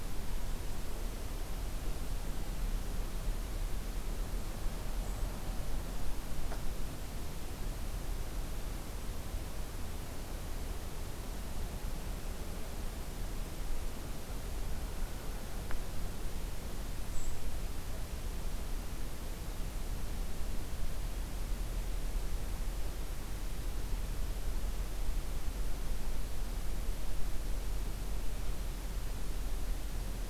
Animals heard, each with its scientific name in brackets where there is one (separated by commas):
Brown Creeper (Certhia americana)